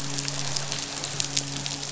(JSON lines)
{"label": "biophony, midshipman", "recorder": "SoundTrap 500"}